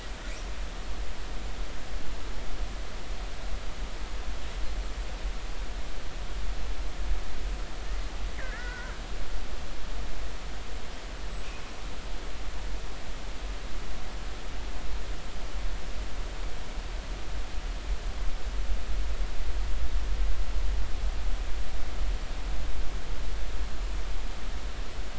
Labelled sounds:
8.4	8.9	killer whale, northern resident, 0.93 to 2.3 kHz
11.2	11.5	killer whale, northern resident, 7.6 to 7.9 kHz

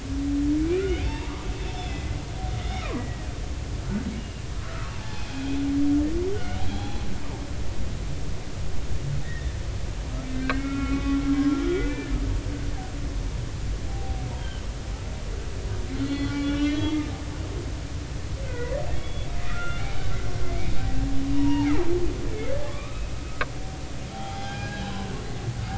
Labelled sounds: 0.8	1.3	humpback whale, 0.83 to 3.7 kHz
1.8	2.2	humpback whale, 2.0 to 3.6 kHz
2.6	3.3	humpback whale, 0.96 to 3.9 kHz
4.2	7.0	humpback whale, 0.80 to 3.5 kHz
9.2	11.2	humpback whale, 1.1 to 3.1 kHz
11.5	12.1	humpback whale, 1.3 to 2.1 kHz
13.9	14.6	humpback whale, 0.80 to 3.3 kHz
15.9	17.0	humpback whale, 1.1 to 4.3 kHz
17.4	20.1	humpback whale, 0.93 to 3.5 kHz
21.3	23.5	humpback whale, 0.80 to 2.9 kHz
24.1	25.0	humpback whale, 0.80 to 3.1 kHz

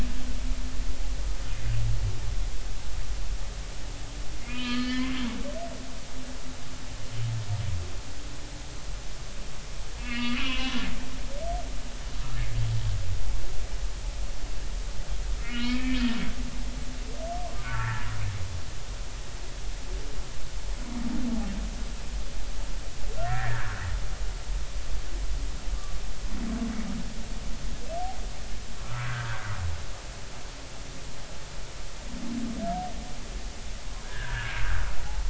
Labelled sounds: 4.5	5.2	humpback whale, 1.2 to 4.6 kHz
10.0	10.8	humpback whale, 0.99 to 3.1 kHz
15.4	16.0	humpback whale, 1.3 to 2.6 kHz
17.5	18.1	humpback whale, 0.83 to 1.9 kHz
23.2	23.8	humpback whale, 1.3 to 2.0 kHz
29.2	30.1	humpback whale, 1.1 to 1.7 kHz
34.0	34.6	humpback whale, 1.4 to 1.9 kHz

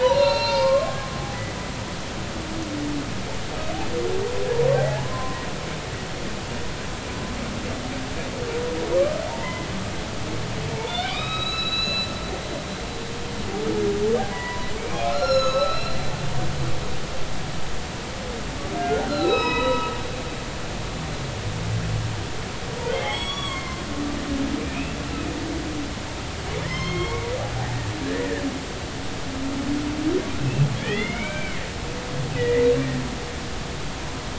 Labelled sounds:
0.0	1.0	humpback whale, 0.83 to 5.5 kHz
4.8	5.4	humpback whale, 0.80 to 1.1 kHz
9.3	9.7	humpback whale, 0.86 to 2.2 kHz
10.9	12.1	humpback whale, 1.1 to 5.2 kHz
14.3	16.0	humpback whale, 0.93 to 6.8 kHz
18.8	19.9	humpback whale, 0.86 to 5.2 kHz
20.4	20.8	humpback whale, 1.9 to 2.0 kHz
22.9	23.8	humpback whale, 0.80 to 7.9 kHz
24.6	25.0	humpback whale, 2.3 to 2.8 kHz
26.6	27.3	humpback whale, 0.99 to 6.5 kHz
28.0	28.4	humpback whale, 1.5 to 2.0 kHz
30.8	31.6	humpback whale, 1.4 to 3.6 kHz
32.3	32.7	humpback whale, 1.8 to 2.1 kHz

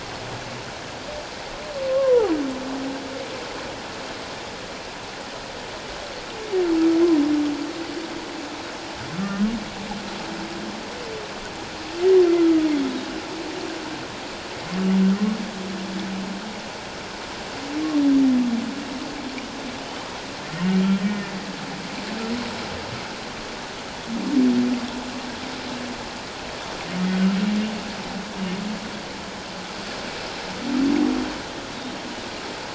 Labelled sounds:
1.9	2.3	humpback whale, 0.78 to 1.2 kHz
12.4	12.7	humpback whale, 1.2 to 1.4 kHz
21.0	21.3	humpback whale, 1.8 to 1.9 kHz

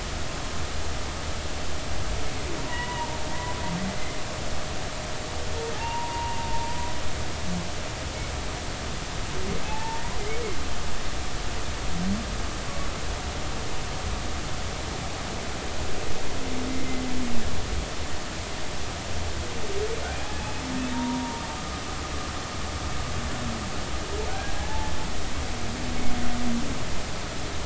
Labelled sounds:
2.6	3.5	humpback whale, 0.86 to 2.0 kHz
5.7	6.7	humpback whale, 0.80 to 1.1 kHz
9.6	10.0	humpback whale, 0.80 to 0.99 kHz
16.7	17.0	humpback whale, 2.0 to 2.1 kHz
20.4	20.6	humpback whale, 2.5 to 2.6 kHz
21.9	22.4	humpback whale, 0.90 to 0.99 kHz
24.3	24.9	humpback whale, 0.80 to 1.7 kHz

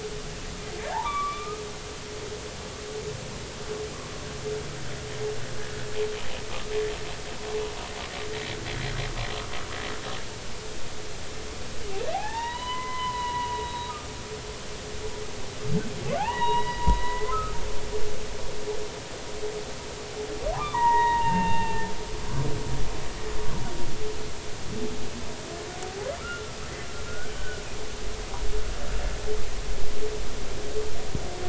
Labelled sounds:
0.8	1.6	humpback whale, 0.80 to 2.5 kHz
12.1	13.9	humpback whale, 0.80 to 4.0 kHz
16.2	17.6	humpback whale, 0.80 to 4.0 kHz
20.5	21.9	humpback whale, 0.80 to 3.8 kHz
26.2	26.6	humpback whale, 1.3 to 1.5 kHz
27.1	27.6	humpback whale, 1.3 to 1.6 kHz

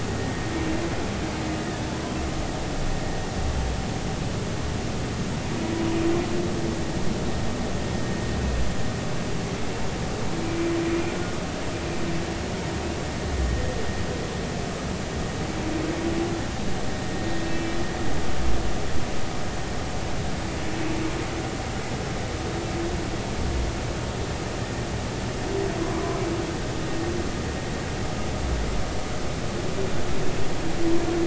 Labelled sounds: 17.4	17.8	humpback whale, 2.3 to 2.7 kHz
25.8	26.2	humpback whale, 0.96 to 1.1 kHz

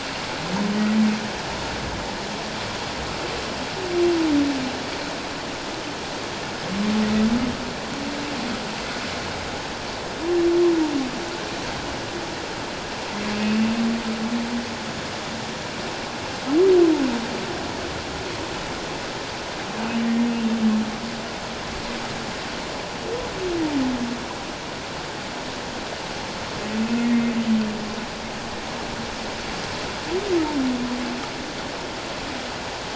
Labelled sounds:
13.3	13.6	humpback whale, 2.5 to 2.7 kHz

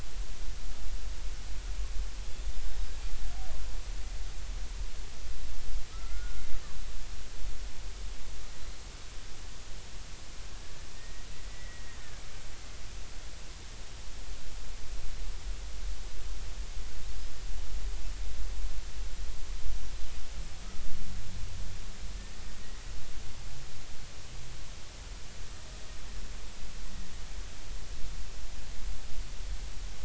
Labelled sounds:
5.9	6.4	killer whale, Bigg's (transient), 1.2 to 1.5 kHz
11.5	12.3	killer whale, Bigg's (transient), 1.8 to 2.0 kHz

